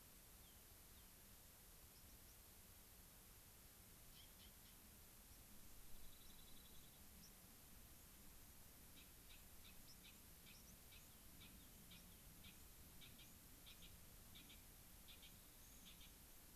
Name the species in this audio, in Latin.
Salpinctes obsoletus, Zonotrichia leucophrys